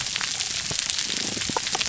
{"label": "biophony, damselfish", "recorder": "SoundTrap 300"}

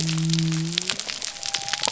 {"label": "biophony", "recorder": "SoundTrap 300"}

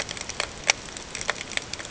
{"label": "ambient", "recorder": "HydroMoth"}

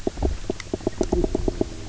{"label": "biophony, knock croak", "recorder": "SoundTrap 300"}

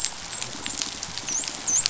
{"label": "biophony, dolphin", "recorder": "SoundTrap 500"}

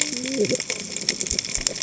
{"label": "biophony, cascading saw", "recorder": "HydroMoth"}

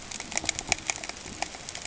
{"label": "ambient", "recorder": "HydroMoth"}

